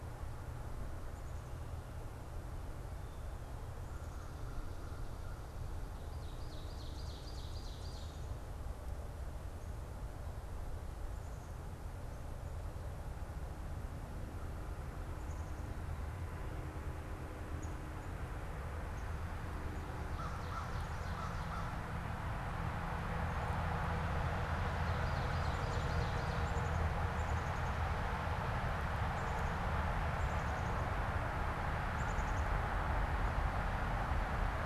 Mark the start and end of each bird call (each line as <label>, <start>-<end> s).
Ovenbird (Seiurus aurocapilla), 5.9-8.2 s
Black-capped Chickadee (Poecile atricapillus), 17.4-18.0 s
American Crow (Corvus brachyrhynchos), 19.8-21.9 s
Ovenbird (Seiurus aurocapilla), 19.8-21.9 s
Ovenbird (Seiurus aurocapilla), 24.3-26.5 s
Black-capped Chickadee (Poecile atricapillus), 26.7-28.0 s
Black-capped Chickadee (Poecile atricapillus), 28.9-32.9 s